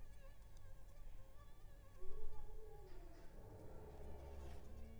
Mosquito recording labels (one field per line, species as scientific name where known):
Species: Anopheles funestus s.l.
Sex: female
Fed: unfed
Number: one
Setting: cup